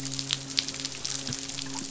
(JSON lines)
{"label": "biophony, midshipman", "recorder": "SoundTrap 500"}